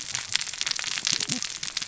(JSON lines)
{"label": "biophony, cascading saw", "recorder": "SoundTrap 600 or HydroMoth"}